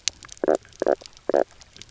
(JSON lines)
{"label": "biophony, knock croak", "recorder": "SoundTrap 300"}